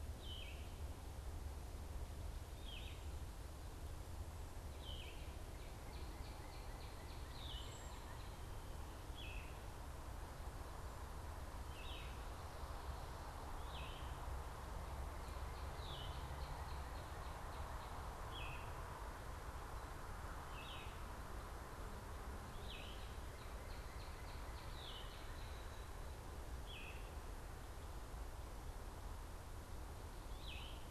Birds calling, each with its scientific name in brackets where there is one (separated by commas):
Yellow-throated Vireo (Vireo flavifrons), Cedar Waxwing (Bombycilla cedrorum), Northern Cardinal (Cardinalis cardinalis)